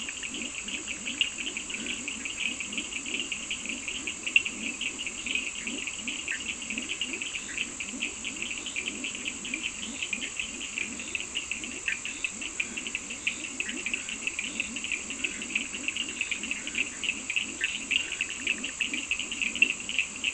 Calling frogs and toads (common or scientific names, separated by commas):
Bischoff's tree frog, Leptodactylus latrans, Cochran's lime tree frog, Scinax perereca